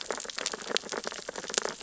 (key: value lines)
label: biophony, sea urchins (Echinidae)
recorder: SoundTrap 600 or HydroMoth